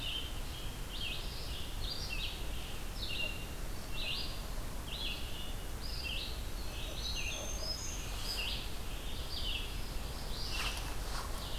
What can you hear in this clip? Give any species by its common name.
Red-eyed Vireo, Black-throated Green Warbler, Northern Parula